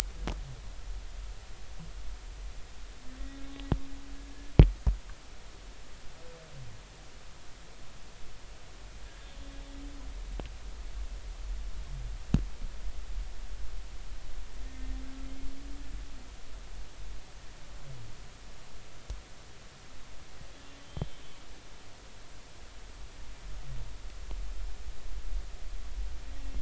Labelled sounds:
3.4	3.7	humpback whale, 3.8 to 3.9 kHz
20.8	21.1	humpback whale, 3.0 to 3.5 kHz

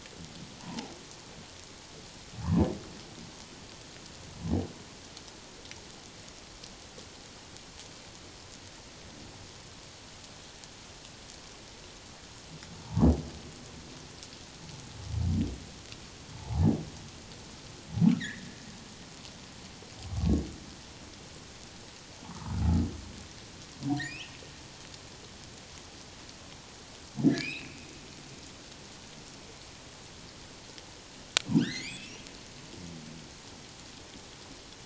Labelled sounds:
0.6	0.9	humpback whale, 0.78 to 1.1 kHz
12.8	13.1	humpback whale, 0.81 to 1.2 kHz
16.3	16.7	humpback whale, 0.78 to 0.97 kHz
18.2	18.5	humpback whale, 1.6 to 2.2 kHz
20.1	20.4	humpback whale, 1.1 to 1.2 kHz
22.2	22.6	humpback whale, 0.78 to 1.4 kHz
23.9	24.3	humpback whale, 2.2 to 5.4 kHz
27.3	27.9	humpback whale, 1.6 to 2.8 kHz
31.5	32.2	humpback whale, 1.3 to 4.4 kHz

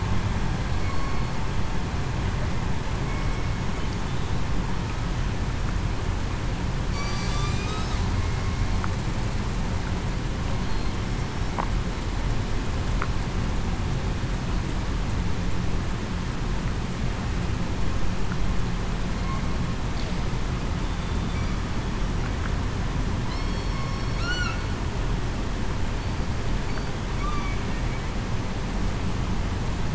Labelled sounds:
3.0	3.4	killer whale, southern resident, 2.2 to 2.3 kHz
6.9	7.3	killer whale, southern resident, 2.2 to 4.7 kHz
20.8	21.4	killer whale, southern resident, 3.5 to 3.6 kHz
23.3	24.6	killer whale, southern resident, 1.3 to 5.5 kHz
27.2	27.5	killer whale, southern resident, 1.1 to 1.2 kHz

